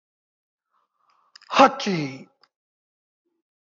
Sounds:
Sneeze